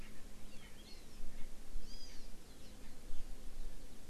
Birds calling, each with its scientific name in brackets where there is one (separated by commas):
Hawaii Amakihi (Chlorodrepanis virens), Erckel's Francolin (Pternistis erckelii)